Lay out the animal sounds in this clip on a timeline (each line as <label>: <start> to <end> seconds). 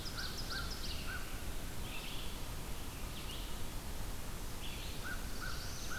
Ovenbird (Seiurus aurocapilla): 0.0 to 1.1 seconds
Red-eyed Vireo (Vireo olivaceus): 0.0 to 1.4 seconds
American Crow (Corvus brachyrhynchos): 0.0 to 1.8 seconds
Red-eyed Vireo (Vireo olivaceus): 1.8 to 6.0 seconds
Black-throated Blue Warbler (Setophaga caerulescens): 4.6 to 6.0 seconds
American Crow (Corvus brachyrhynchos): 4.8 to 6.0 seconds
Ovenbird (Seiurus aurocapilla): 4.9 to 6.0 seconds